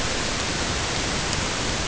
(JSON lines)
{"label": "ambient", "recorder": "HydroMoth"}